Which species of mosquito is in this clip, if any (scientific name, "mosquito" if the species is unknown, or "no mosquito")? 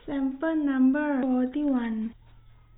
no mosquito